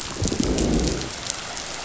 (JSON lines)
{"label": "biophony, growl", "recorder": "SoundTrap 500"}